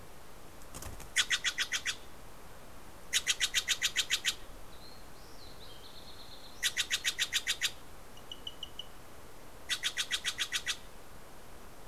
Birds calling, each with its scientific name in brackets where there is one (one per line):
Fox Sparrow (Passerella iliaca)
Steller's Jay (Cyanocitta stelleri)